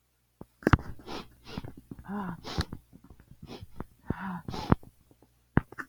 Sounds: Sniff